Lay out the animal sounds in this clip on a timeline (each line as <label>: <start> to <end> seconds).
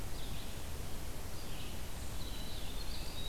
Red-eyed Vireo (Vireo olivaceus): 0.0 to 3.3 seconds
Winter Wren (Troglodytes hiemalis): 1.9 to 3.3 seconds